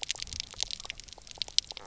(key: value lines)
label: biophony, knock croak
recorder: SoundTrap 300